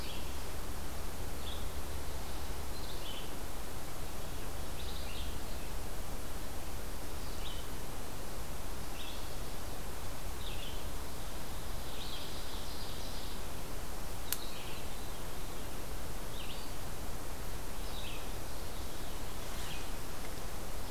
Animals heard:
Ovenbird (Seiurus aurocapilla)
Red-eyed Vireo (Vireo olivaceus)
Veery (Catharus fuscescens)

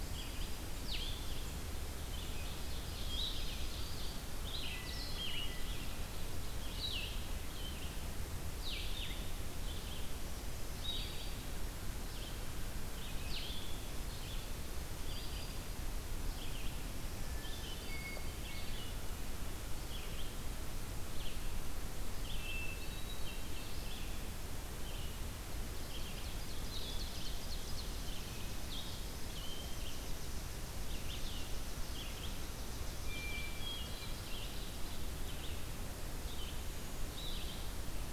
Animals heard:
Chipping Sparrow (Spizella passerina)
Hermit Thrush (Catharus guttatus)
Ovenbird (Seiurus aurocapilla)
Red-eyed Vireo (Vireo olivaceus)

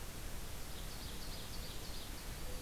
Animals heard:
Ovenbird (Seiurus aurocapilla)

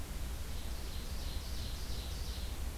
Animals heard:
Ovenbird (Seiurus aurocapilla)

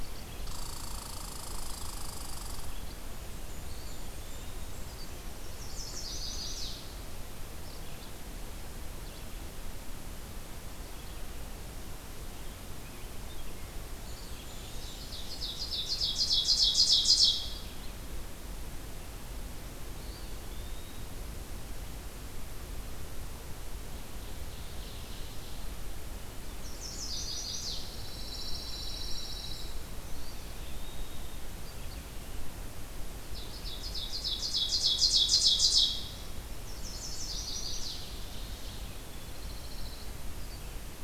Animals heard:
Ovenbird (Seiurus aurocapilla)
Chestnut-sided Warbler (Setophaga pensylvanica)
Red-eyed Vireo (Vireo olivaceus)
Blackburnian Warbler (Setophaga fusca)
Red Squirrel (Tamiasciurus hudsonicus)
Eastern Wood-Pewee (Contopus virens)
Pine Warbler (Setophaga pinus)

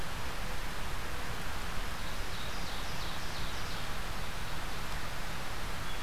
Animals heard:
Ovenbird (Seiurus aurocapilla)

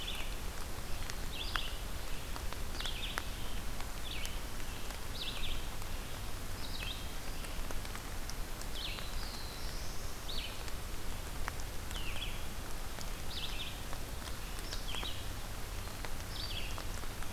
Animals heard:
Black-throated Blue Warbler (Setophaga caerulescens)
Red-eyed Vireo (Vireo olivaceus)

